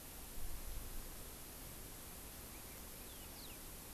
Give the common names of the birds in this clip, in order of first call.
Yellow-fronted Canary